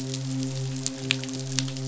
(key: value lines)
label: biophony, midshipman
recorder: SoundTrap 500